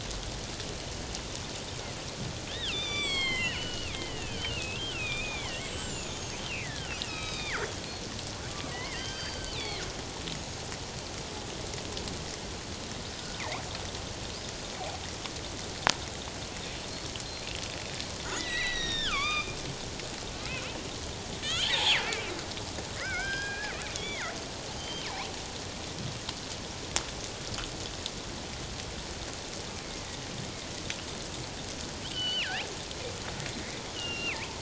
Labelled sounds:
2.5	7.7	killer whale, northern resident, G clan, 1.0 to 7.9 kHz
8.7	9.8	killer whale, northern resident, G clan, 1.2 to 4.8 kHz
10.3	10.6	killer whale, northern resident, G clan, 6.4 to 6.7 kHz
18.4	19.6	killer whale, northern resident, G clan, 1.0 to 7.9 kHz
21.4	22.0	killer whale, northern resident, G clan, 0.78 to 7.0 kHz
23.0	24.3	killer whale, northern resident, G clan, 1.3 to 5.2 kHz
24.8	25.1	killer whale, northern resident, G clan, 3.0 to 6.4 kHz
29.8	30.2	killer whale, northern resident, G clan, 1.9 to 2.3 kHz
32.1	32.5	killer whale, northern resident, G clan, 1.4 to 4.6 kHz
33.9	34.5	killer whale, northern resident, G clan, 0.84 to 3.1 kHz

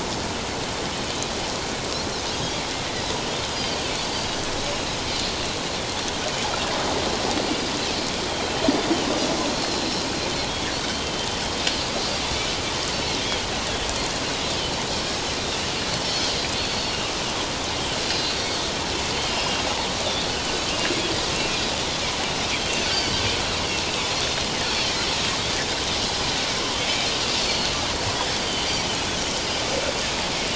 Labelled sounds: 3.5	3.8	Pacific white-sided dolphin, 4.5 to 4.9 kHz
9.5	11.3	Pacific white-sided dolphin, 3.0 to 4.3 kHz
16.0	17.1	Pacific white-sided dolphin, 2.6 to 4.7 kHz
18.1	18.5	Pacific white-sided dolphin, 3.9 to 4.4 kHz
19.3	19.6	Pacific white-sided dolphin, 2.6 to 2.9 kHz
20.7	21.0	Pacific white-sided dolphin, 2.5 to 2.9 kHz
21.4	21.6	Pacific white-sided dolphin, 2.3 to 2.5 kHz
22.8	23.2	Pacific white-sided dolphin, 1.4 to 4.8 kHz
27.4	28.6	Pacific white-sided dolphin, 4.2 to 4.9 kHz

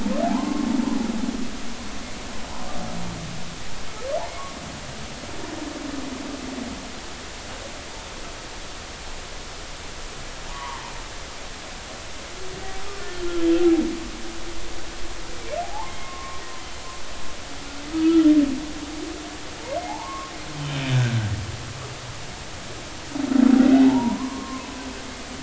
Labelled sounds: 0.2	0.7	humpback whale, 0.80 to 1.1 kHz
10.5	10.9	humpback whale, 0.83 to 1.2 kHz
13.2	13.5	humpback whale, 1.3 to 1.4 kHz
15.6	16.4	humpback whale, 0.80 to 2.2 kHz
18.0	18.3	humpback whale, 1.2 to 1.4 kHz
19.8	20.3	humpback whale, 0.80 to 1.2 kHz
23.9	24.8	humpback whale, 0.80 to 1.2 kHz

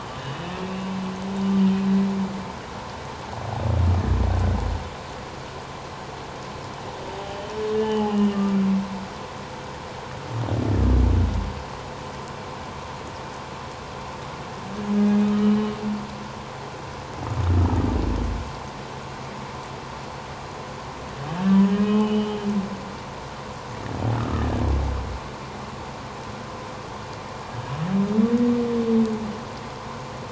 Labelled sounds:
0.2	0.5	humpback whale, 2.8 to 3.0 kHz
7.8	8.6	humpback whale, 0.78 to 3.1 kHz
15.2	15.8	humpback whale, 1.2 to 3.0 kHz
21.5	22.5	humpback whale, 1.2 to 3.2 kHz
24.2	24.4	humpback whale, 1.2 to 1.4 kHz

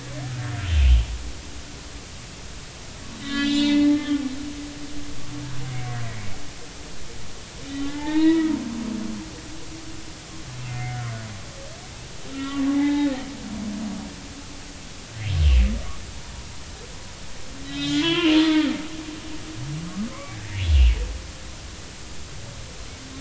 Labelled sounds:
3.1	4.2	humpback whale, 1.2 to 7.3 kHz
7.7	8.6	humpback whale, 0.83 to 3.9 kHz
10.7	11.0	humpback whale, 2.0 to 2.3 kHz
12.3	13.1	humpback whale, 0.80 to 3.8 kHz
17.6	18.7	humpback whale, 0.90 to 5.2 kHz
20.1	20.4	humpback whale, 0.99 to 1.3 kHz

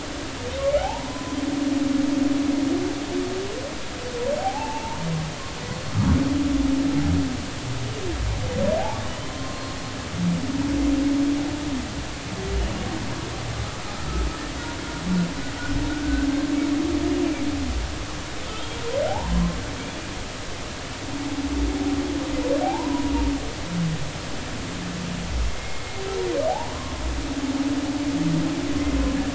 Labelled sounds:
0.8	1.4	humpback whale, 0.80 to 1.1 kHz
4.4	5.0	humpback whale, 0.80 to 2.8 kHz
9.2	9.8	humpback whale, 0.99 to 1.1 kHz
16.0	16.3	humpback whale, 1.5 to 1.6 kHz
18.4	19.6	humpback whale, 0.80 to 3.3 kHz
22.6	23.1	humpback whale, 0.80 to 1.1 kHz
25.5	26.0	humpback whale, 2.1 to 2.3 kHz
26.5	26.7	humpback whale, 0.80 to 1.0 kHz

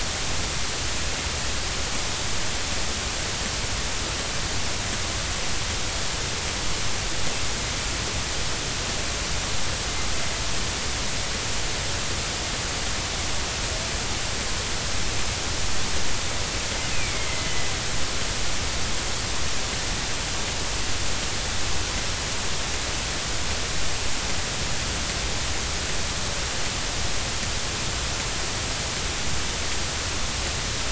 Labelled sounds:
16.9	17.5	killer whale, northern resident, A clan, AA subclan, 2.0 to 2.7 kHz

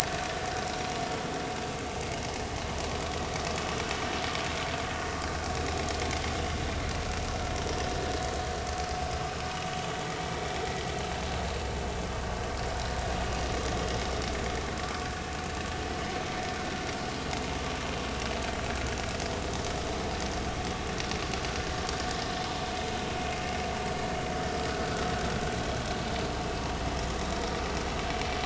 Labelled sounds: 0.0	0.3	vessel noise, 4.1 to 4.4 kHz

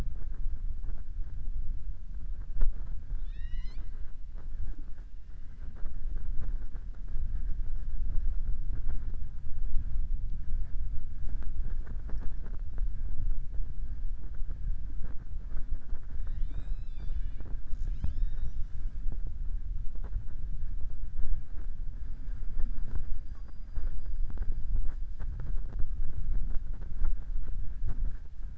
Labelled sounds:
3.1	3.9	killer whale, southern resident, 0.99 to 7.4 kHz
16.1	17.6	killer whale, southern resident, 0.28 to 5.3 kHz

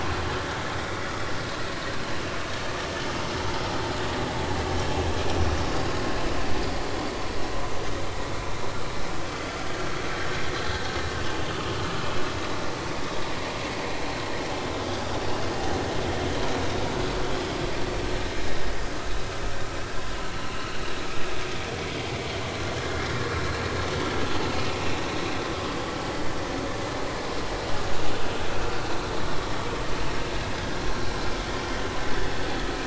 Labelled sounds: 11.4	11.7	vessel noise, 3.4 to 3.7 kHz
23.1	23.3	vessel noise, 1.6 to 2.1 kHz
31.6	31.9	vessel noise, 3.0 to 3.2 kHz

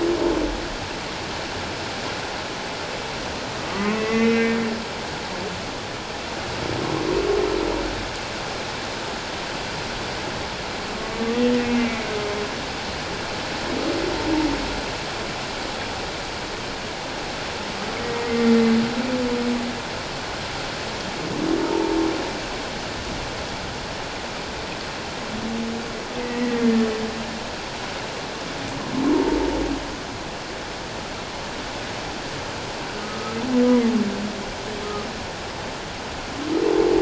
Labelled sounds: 3.7	4.5	humpback whale, 0.94 to 2.8 kHz
11.0	12.1	humpback whale, 1.1 to 2.3 kHz
21.6	22.0	humpback whale, 0.84 to 0.97 kHz
26.2	26.6	humpback whale, 1.8 to 2.1 kHz
29.1	29.4	humpback whale, 0.84 to 0.97 kHz
33.0	33.4	humpback whale, 1.2 to 1.3 kHz

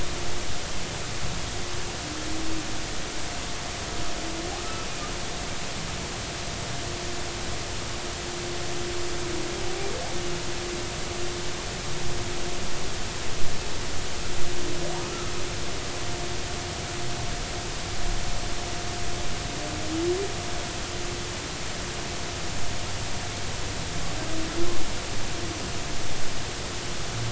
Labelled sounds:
15.0	15.3	humpback whale, 1.2 to 1.4 kHz

